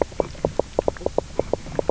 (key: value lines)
label: biophony, knock croak
recorder: SoundTrap 300